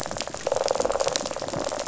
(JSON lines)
{"label": "biophony, rattle response", "recorder": "SoundTrap 500"}